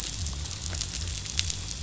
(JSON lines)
{"label": "biophony", "recorder": "SoundTrap 500"}